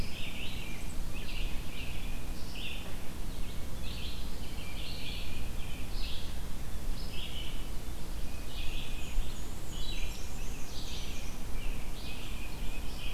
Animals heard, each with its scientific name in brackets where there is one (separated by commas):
Tufted Titmouse (Baeolophus bicolor), Black-and-white Warbler (Mniotilta varia), Red-eyed Vireo (Vireo olivaceus), Pine Warbler (Setophaga pinus), Hairy Woodpecker (Dryobates villosus)